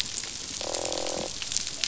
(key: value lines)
label: biophony, croak
recorder: SoundTrap 500